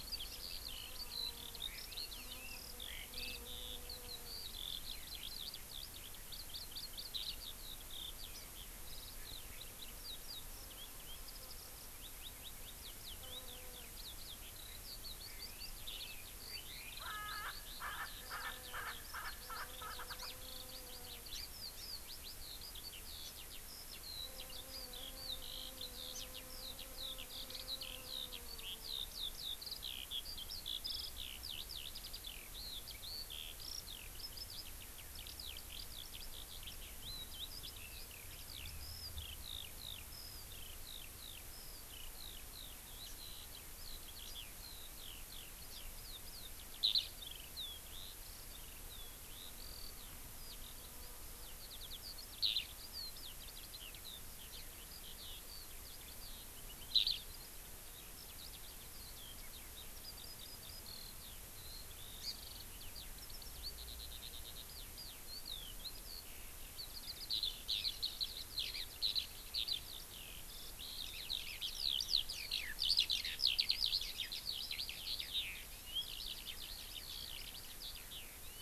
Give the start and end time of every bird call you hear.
[0.00, 78.61] Eurasian Skylark (Alauda arvensis)
[2.06, 2.36] Hawaii Amakihi (Chlorodrepanis virens)
[16.96, 20.26] Erckel's Francolin (Pternistis erckelii)
[62.16, 62.36] Hawaii Amakihi (Chlorodrepanis virens)

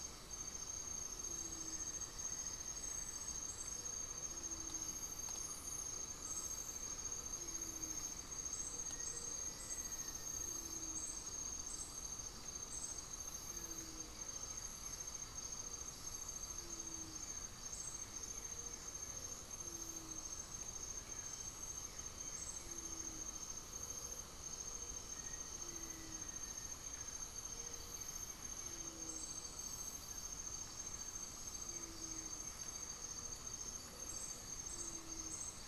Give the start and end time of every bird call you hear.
[0.00, 35.68] Gray-fronted Dove (Leptotila rufaxilla)
[1.06, 5.26] unidentified bird
[5.17, 7.96] Undulated Tinamou (Crypturellus undulatus)
[6.37, 35.68] Blue-gray Saltator (Saltator coerulescens)
[8.16, 10.77] Black-faced Antthrush (Formicarius analis)
[14.27, 16.57] Undulated Tinamou (Crypturellus undulatus)
[24.86, 27.27] Black-faced Antthrush (Formicarius analis)
[34.77, 35.68] unidentified bird

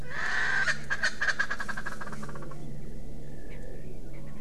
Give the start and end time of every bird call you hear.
[0.00, 2.60] Erckel's Francolin (Pternistis erckelii)
[3.50, 3.60] Erckel's Francolin (Pternistis erckelii)

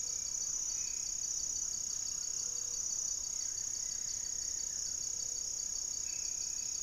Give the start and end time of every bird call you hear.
[0.00, 0.62] Hauxwell's Thrush (Turdus hauxwelli)
[0.00, 1.22] Black-faced Antthrush (Formicarius analis)
[0.00, 1.22] Mealy Parrot (Amazona farinosa)
[0.00, 6.83] Gray-fronted Dove (Leptotila rufaxilla)
[3.12, 5.32] Buff-throated Woodcreeper (Xiphorhynchus guttatus)
[5.82, 6.83] Black-faced Antthrush (Formicarius analis)

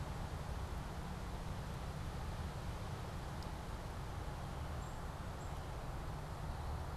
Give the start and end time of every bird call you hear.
[4.59, 6.96] Black-capped Chickadee (Poecile atricapillus)

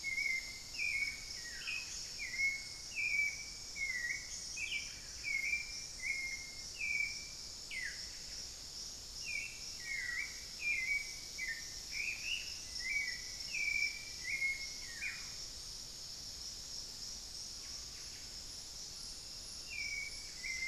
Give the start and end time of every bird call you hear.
[0.00, 20.67] Hauxwell's Thrush (Turdus hauxwelli)
[0.00, 20.67] unidentified bird
[0.78, 2.28] Buff-throated Woodcreeper (Xiphorhynchus guttatus)
[6.88, 20.67] Buff-breasted Wren (Cantorchilus leucotis)
[7.58, 15.48] Buff-throated Woodcreeper (Xiphorhynchus guttatus)
[12.48, 14.68] Black-faced Antthrush (Formicarius analis)
[17.48, 20.67] Screaming Piha (Lipaugus vociferans)

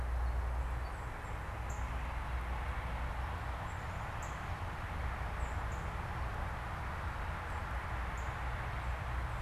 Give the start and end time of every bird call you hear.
[0.00, 9.41] Northern Cardinal (Cardinalis cardinalis)
[0.77, 0.97] unidentified bird
[5.17, 5.57] Song Sparrow (Melospiza melodia)

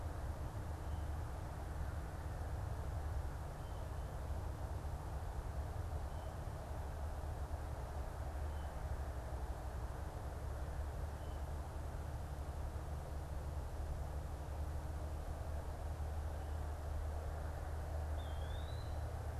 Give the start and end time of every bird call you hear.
[17.96, 19.06] Eastern Wood-Pewee (Contopus virens)

